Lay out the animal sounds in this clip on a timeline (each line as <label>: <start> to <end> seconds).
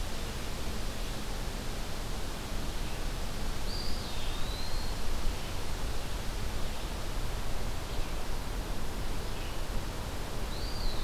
Red-eyed Vireo (Vireo olivaceus): 0.0 to 11.0 seconds
Eastern Wood-Pewee (Contopus virens): 3.6 to 5.0 seconds
Eastern Wood-Pewee (Contopus virens): 10.4 to 11.0 seconds